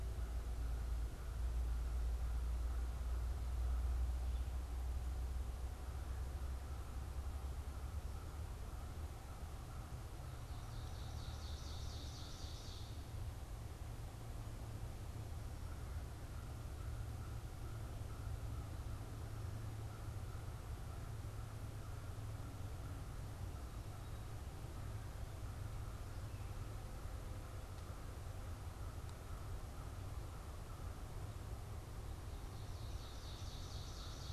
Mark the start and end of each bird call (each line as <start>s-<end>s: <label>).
0.0s-11.5s: American Crow (Corvus brachyrhynchos)
10.6s-13.1s: Ovenbird (Seiurus aurocapilla)
15.2s-34.3s: American Crow (Corvus brachyrhynchos)
32.4s-34.3s: Ovenbird (Seiurus aurocapilla)